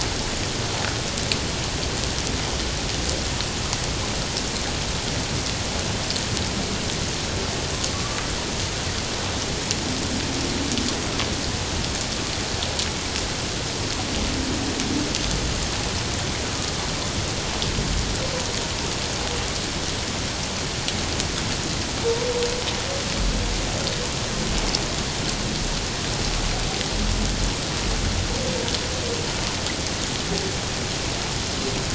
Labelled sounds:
7.9	8.3	humpback whale, 1.1 to 1.3 kHz

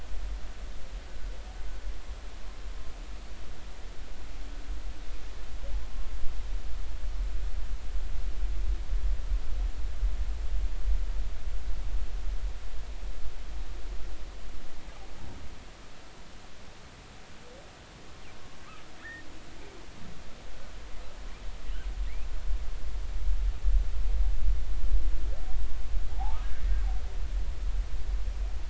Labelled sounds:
19.0	19.3	humpback whale, 1.6 to 1.9 kHz
26.1	26.8	humpback whale, 0.80 to 1.9 kHz

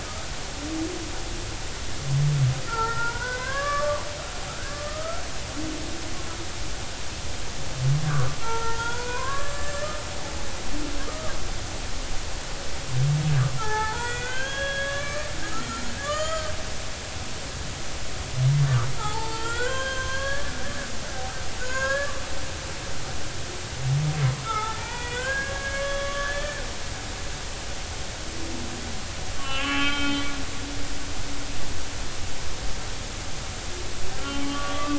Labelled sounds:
2.7	4.0	humpback whale, 0.83 to 2.2 kHz
4.7	5.2	humpback whale, 1.1 to 1.4 kHz
8.4	9.9	humpback whale, 0.83 to 7.6 kHz
11.1	11.3	humpback whale, 1.1 to 1.3 kHz
13.6	16.5	humpback whale, 0.80 to 7.2 kHz
19.0	20.5	humpback whale, 0.80 to 7.5 kHz
21.6	22.2	humpback whale, 0.96 to 2.8 kHz
24.4	26.6	humpback whale, 0.80 to 3.5 kHz
29.4	30.2	humpback whale, 1.0 to 3.7 kHz
34.2	34.9	humpback whale, 1.1 to 3.2 kHz

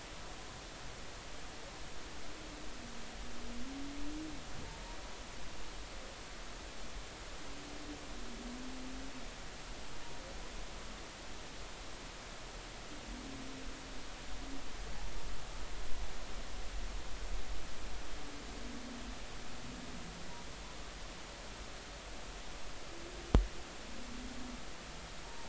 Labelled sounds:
25.2	25.4	humpback whale, 0.86 to 0.99 kHz

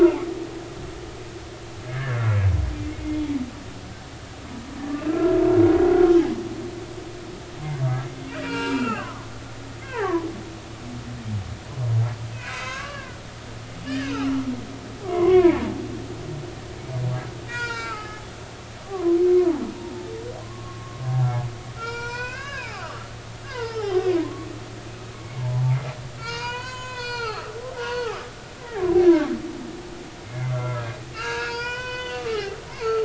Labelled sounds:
1.9	2.2	humpback whale, 1.5 to 1.8 kHz
5.1	5.4	humpback whale, 1.3 to 1.4 kHz
7.8	8.1	humpback whale, 1.1 to 1.4 kHz
8.4	10.3	humpback whale, 0.80 to 2.9 kHz
12.3	13.2	humpback whale, 0.96 to 2.9 kHz
13.9	14.3	humpback whale, 1.5 to 2.9 kHz
15.0	15.6	humpback whale, 0.80 to 2.8 kHz
17.5	18.2	humpback whale, 0.86 to 7.0 kHz
18.8	19.6	humpback whale, 0.80 to 1.2 kHz
20.4	21.0	humpback whale, 0.99 to 1.2 kHz
21.8	23.1	humpback whale, 0.80 to 6.0 kHz
23.4	24.5	humpback whale, 0.86 to 5.5 kHz
25.1	25.6	humpback whale, 0.80 to 2.3 kHz
26.2	28.3	humpback whale, 0.80 to 7.2 kHz
28.6	28.8	humpback whale, 1.6 to 2.1 kHz
30.3	33.0	humpback whale, 0.86 to 6.6 kHz

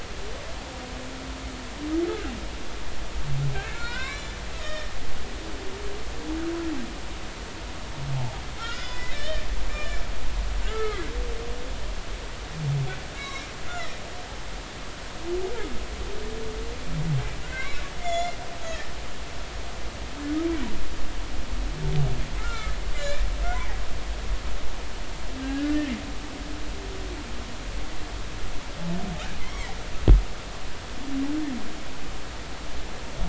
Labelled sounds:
3.5	4.9	humpback whale, 0.90 to 5.6 kHz
8.1	11.1	humpback whale, 0.80 to 5.4 kHz
13.1	13.5	humpback whale, 1.0 to 5.6 kHz
13.8	14.0	humpback whale, 1.8 to 2.1 kHz
17.4	18.9	humpback whale, 1.4 to 7.1 kHz
22.4	23.2	humpback whale, 1.2 to 2.5 kHz
25.4	25.7	humpback whale, 1.5 to 1.8 kHz
29.4	29.7	humpback whale, 1.9 to 3.4 kHz

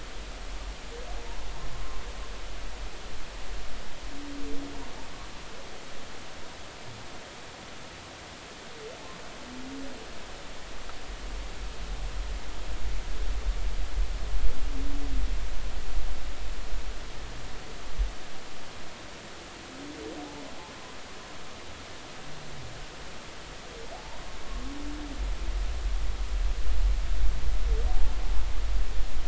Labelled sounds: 23.9	24.2	humpback whale, 0.80 to 1.0 kHz
27.9	28.1	humpback whale, 0.80 to 0.90 kHz

